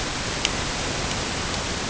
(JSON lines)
{"label": "ambient", "recorder": "HydroMoth"}